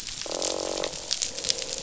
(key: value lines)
label: biophony, croak
recorder: SoundTrap 500